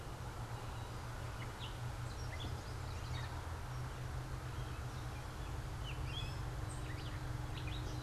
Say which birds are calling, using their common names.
Gray Catbird, Yellow Warbler